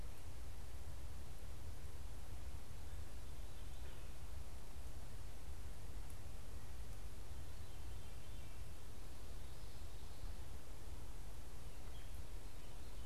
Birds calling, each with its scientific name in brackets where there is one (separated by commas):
Veery (Catharus fuscescens)